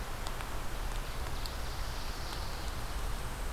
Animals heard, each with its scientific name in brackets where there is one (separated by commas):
Ovenbird (Seiurus aurocapilla), Pine Warbler (Setophaga pinus)